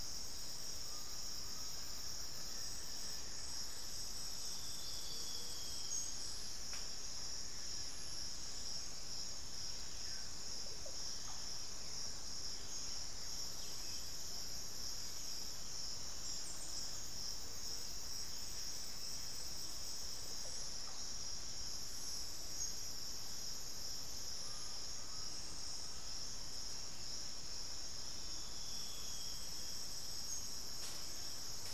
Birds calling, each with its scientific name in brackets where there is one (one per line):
Chestnut-winged Foliage-gleaner (Dendroma erythroptera)
Buff-throated Woodcreeper (Xiphorhynchus guttatus)
Russet-backed Oropendola (Psarocolius angustifrons)
Undulated Tinamou (Crypturellus undulatus)